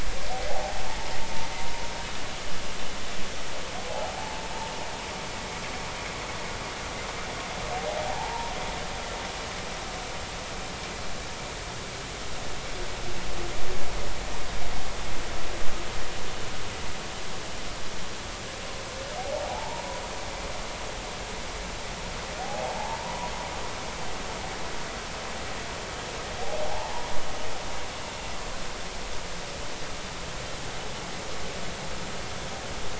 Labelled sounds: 0.5	0.8	humpback whale, 0.80 to 0.93 kHz
4.2	4.4	humpback whale, 0.80 to 0.93 kHz
8.1	8.5	humpback whale, 0.80 to 1.0 kHz
19.2	19.8	humpback whale, 0.80 to 0.99 kHz
22.4	23.0	humpback whale, 0.80 to 0.96 kHz
26.7	27.1	humpback whale, 0.80 to 1.0 kHz

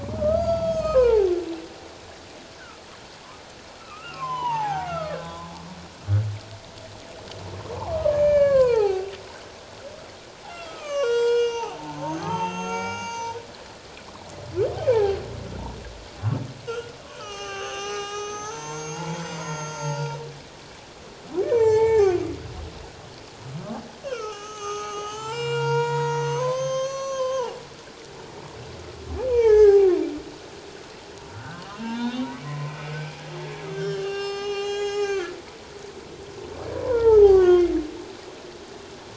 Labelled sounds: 0.0	1.3	humpback whale, 0.78 to 7.8 kHz
3.8	5.5	humpback whale, 0.78 to 6.3 kHz
7.9	9.2	humpback whale, 0.78 to 6.5 kHz
10.5	13.4	humpback whale, 0.78 to 7.9 kHz
14.9	15.2	humpback whale, 0.78 to 1.9 kHz
16.7	20.2	humpback whale, 0.78 to 7.7 kHz
21.4	22.1	humpback whale, 0.78 to 7.6 kHz
24.0	27.6	humpback whale, 0.78 to 7.7 kHz
29.2	30.0	humpback whale, 0.78 to 6.5 kHz
31.3	32.8	humpback whale, 0.84 to 3.9 kHz
33.7	35.4	humpback whale, 0.78 to 7.4 kHz
36.7	37.7	humpback whale, 0.78 to 3.4 kHz

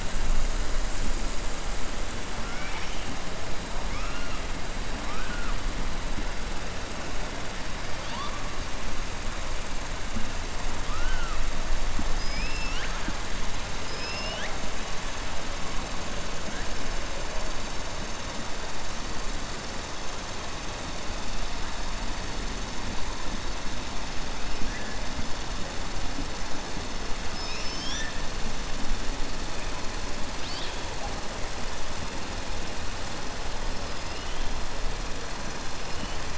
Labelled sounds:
2.4	3.1	killer whale, 0.88 to 3.5 kHz
10.8	11.4	killer whale, 1.0 to 3.1 kHz
12.1	13.2	killer whale, 1.3 to 5.7 kHz

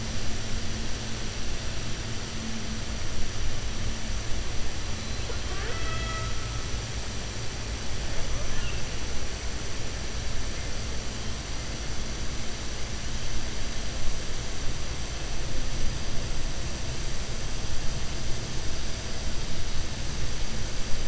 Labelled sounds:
5.2	6.3	killer whale, 0.41 to 4.0 kHz

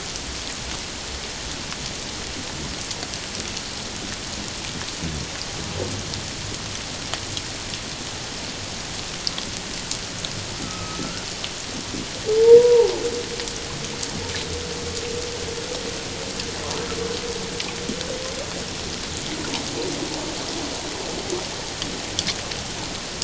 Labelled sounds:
10.6	11.3	humpback whale, 1.2 to 1.5 kHz
12.4	12.9	humpback whale, 0.78 to 1.0 kHz

